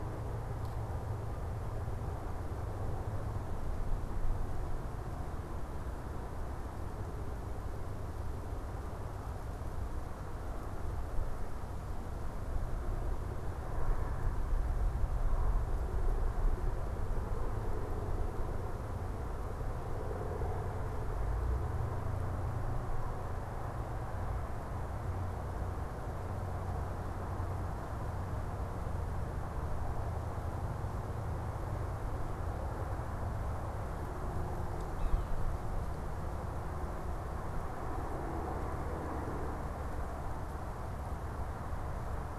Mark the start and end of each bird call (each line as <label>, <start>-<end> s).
Yellow-bellied Sapsucker (Sphyrapicus varius), 34.9-35.3 s